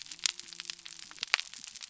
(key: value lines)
label: biophony
recorder: SoundTrap 300